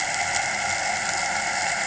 {"label": "anthrophony, boat engine", "recorder": "HydroMoth"}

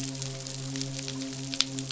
{"label": "biophony, midshipman", "recorder": "SoundTrap 500"}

